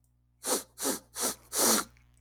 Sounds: Sniff